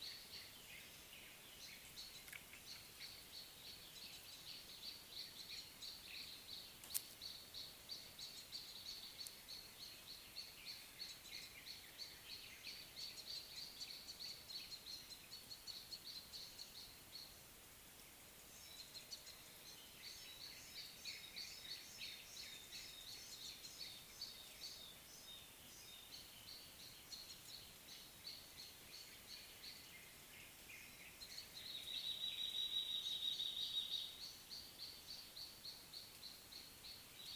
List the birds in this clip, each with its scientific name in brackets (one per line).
Black-collared Apalis (Oreolais pulcher)
Gray Apalis (Apalis cinerea)